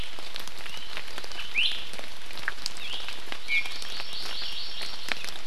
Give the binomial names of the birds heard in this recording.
Drepanis coccinea, Chlorodrepanis virens